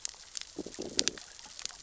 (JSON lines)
{"label": "biophony, growl", "recorder": "SoundTrap 600 or HydroMoth"}